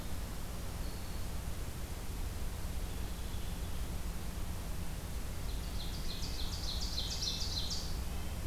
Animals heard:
Red-breasted Nuthatch (Sitta canadensis), Ovenbird (Seiurus aurocapilla), Black-throated Green Warbler (Setophaga virens), American Robin (Turdus migratorius)

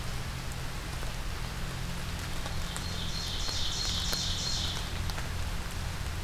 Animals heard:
Ovenbird (Seiurus aurocapilla)

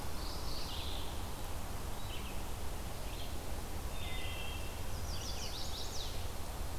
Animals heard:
Mourning Warbler (Geothlypis philadelphia), Red-eyed Vireo (Vireo olivaceus), Chestnut-sided Warbler (Setophaga pensylvanica), Wood Thrush (Hylocichla mustelina)

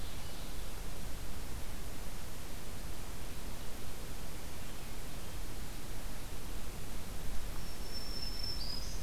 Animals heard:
Ovenbird (Seiurus aurocapilla), Black-throated Green Warbler (Setophaga virens)

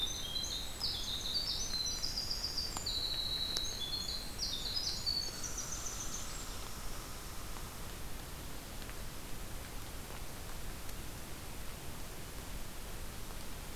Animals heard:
Winter Wren (Troglodytes hiemalis), Red Squirrel (Tamiasciurus hudsonicus)

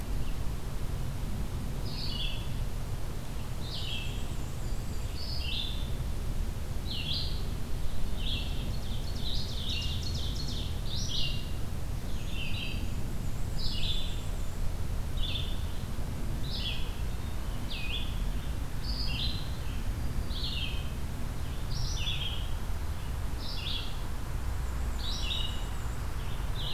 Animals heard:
Red-eyed Vireo (Vireo olivaceus), Black-and-white Warbler (Mniotilta varia), Black-throated Green Warbler (Setophaga virens), Ovenbird (Seiurus aurocapilla)

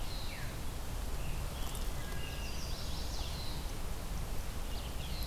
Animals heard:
Veery (Catharus fuscescens), Chestnut-sided Warbler (Setophaga pensylvanica), Red-eyed Vireo (Vireo olivaceus)

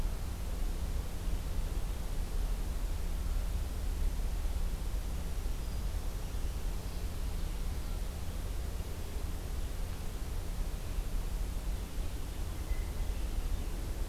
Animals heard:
Blue Jay (Cyanocitta cristata), Black-throated Green Warbler (Setophaga virens)

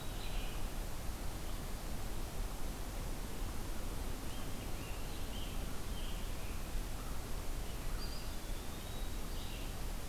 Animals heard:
Eastern Wood-Pewee (Contopus virens), Scarlet Tanager (Piranga olivacea), Red-eyed Vireo (Vireo olivaceus)

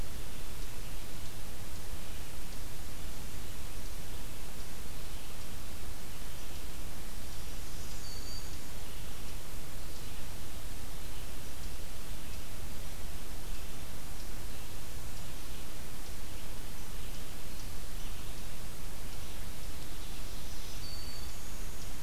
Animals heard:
unidentified call, Black-throated Green Warbler (Setophaga virens), Eastern Chipmunk (Tamias striatus)

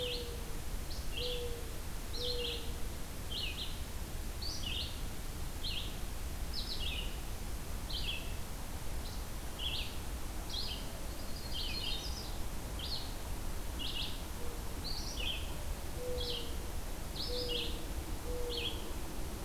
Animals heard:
Mourning Dove (Zenaida macroura), Red-eyed Vireo (Vireo olivaceus), Yellow-rumped Warbler (Setophaga coronata)

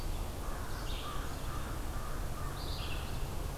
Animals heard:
Red-eyed Vireo (Vireo olivaceus), American Crow (Corvus brachyrhynchos)

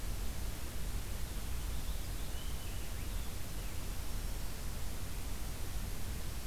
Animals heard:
Purple Finch (Haemorhous purpureus), Black-throated Green Warbler (Setophaga virens)

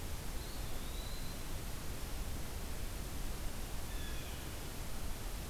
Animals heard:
Blue Jay (Cyanocitta cristata), Eastern Wood-Pewee (Contopus virens)

